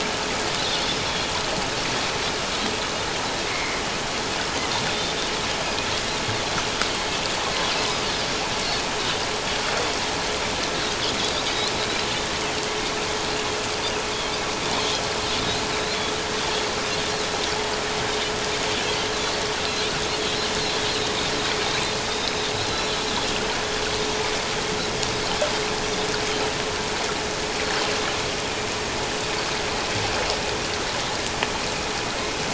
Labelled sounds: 3.4	3.8	Pacific white-sided dolphin, 2.0 to 2.3 kHz
4.8	5.2	Pacific white-sided dolphin, 3.5 to 3.7 kHz
15.7	16.0	Pacific white-sided dolphin, 3.6 to 4.3 kHz
22.1	22.5	Pacific white-sided dolphin, 3.5 to 4.0 kHz

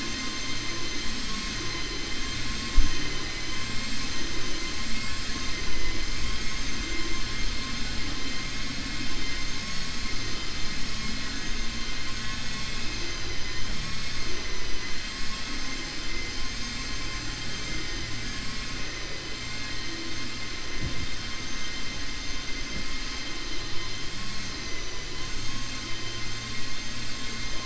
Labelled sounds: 13.0	14.9	vessel noise, 1.0 to 7.5 kHz

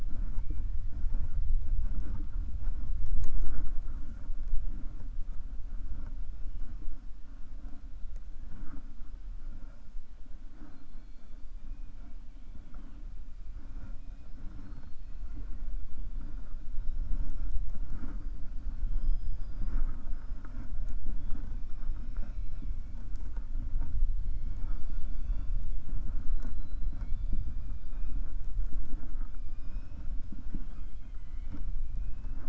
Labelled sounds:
24.2	25.8	killer whale, 0.91 to 6.3 kHz

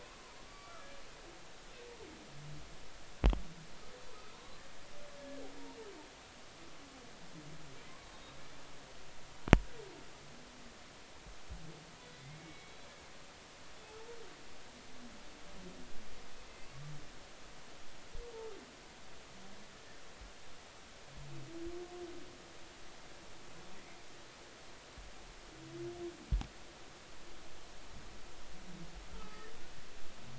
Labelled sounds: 0.0	0.9	humpback whale, 0.90 to 4.7 kHz
4.1	4.7	humpback whale, 0.93 to 4.7 kHz
5.2	5.4	humpback whale, 1.5 to 1.8 kHz
8.0	8.4	humpback whale, 3.7 to 3.9 kHz
12.0	12.8	humpback whale, 2.0 to 3.6 kHz
29.1	29.5	humpback whale, 1.2 to 1.4 kHz

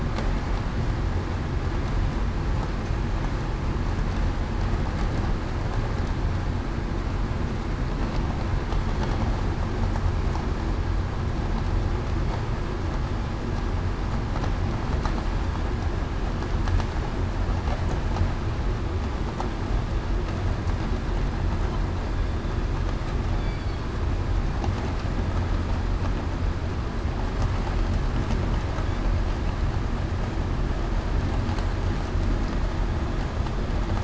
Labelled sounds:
23.4	23.9	killer whale, southern resident, 4.3 to 4.7 kHz

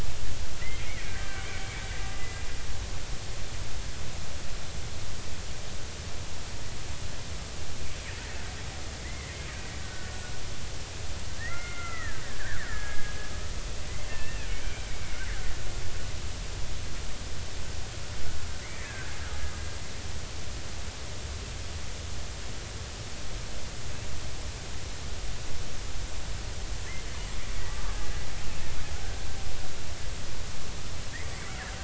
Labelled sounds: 0.6	2.5	killer whale, Bigg's (transient), 1.4 to 2.5 kHz
9.0	10.1	killer whale, Bigg's (transient), 1.4 to 2.2 kHz
11.4	13.1	killer whale, Bigg's (transient), 1.2 to 2.2 kHz
14.1	15.3	killer whale, Bigg's (transient), 1.7 to 2.8 kHz
18.6	19.2	killer whale, Bigg's (transient), 1.5 to 2.5 kHz
28.9	29.2	killer whale, Bigg's (transient), 1.4 to 1.7 kHz

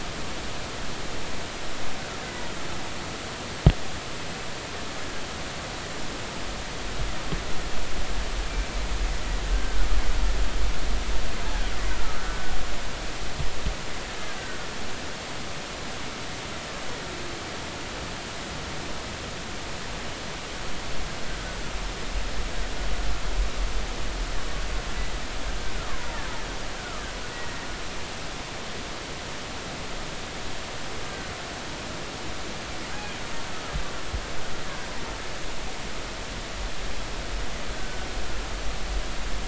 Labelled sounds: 9.5	9.9	killer whale, Bigg's (transient), 1.4 to 1.6 kHz
21.3	21.6	killer whale, Bigg's (transient), 1.4 to 1.6 kHz
26.8	27.6	killer whale, Bigg's (transient), 0.86 to 2.0 kHz
37.7	38.1	killer whale, Bigg's (transient), 1.4 to 1.6 kHz

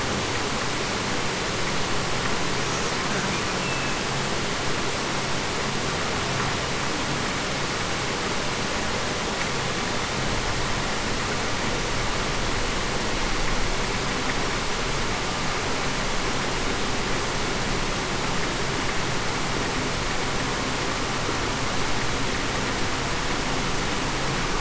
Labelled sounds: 3.6	3.9	killer whale, Bigg's (transient), 2.6 to 2.7 kHz

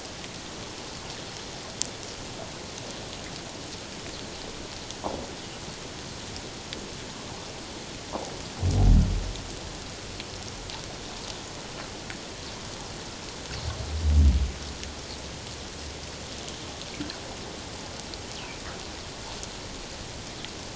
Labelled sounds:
18.4	18.6	fish, 2.2 to 2.8 kHz

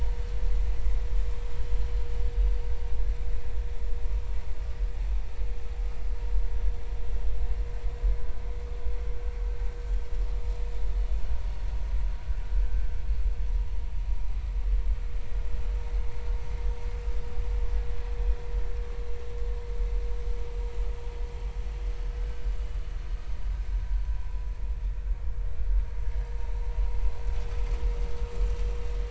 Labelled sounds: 22.2	22.4	vessel noise, 1.5 to 1.6 kHz

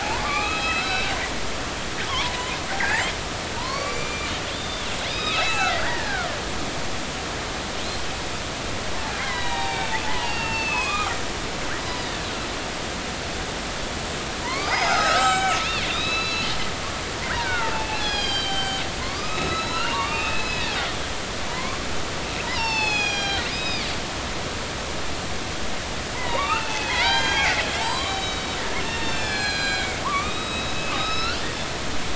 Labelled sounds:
0.0	1.1	killer whale, northern resident, A clan, AB subclan, 0.80 to 4.2 kHz
2.1	2.3	killer whale, northern resident, A clan, AB subclan, 0.83 to 1.2 kHz
2.8	6.3	killer whale, northern resident, A clan, AB subclan, 0.80 to 6.0 kHz
9.2	12.1	killer whale, northern resident, A clan, AB subclan, 0.80 to 6.3 kHz
14.4	20.8	killer whale, northern resident, A clan, AB subclan, 0.80 to 8.0 kHz
21.5	21.8	killer whale, northern resident, A clan, AB subclan, 0.93 to 1.2 kHz
22.5	23.9	killer whale, northern resident, A clan, AB subclan, 0.80 to 7.4 kHz
26.1	28.6	killer whale, northern resident, A clan, AB subclan, 0.80 to 7.3 kHz
28.8	31.4	killer whale, northern resident, A clan, AB subclan, 0.90 to 7.6 kHz

